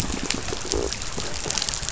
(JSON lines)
{"label": "biophony", "recorder": "SoundTrap 500"}